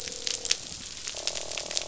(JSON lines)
{"label": "biophony, croak", "recorder": "SoundTrap 500"}